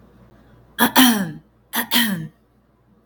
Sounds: Throat clearing